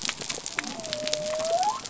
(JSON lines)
{"label": "biophony", "recorder": "SoundTrap 300"}